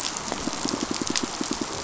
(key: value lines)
label: biophony, pulse
recorder: SoundTrap 500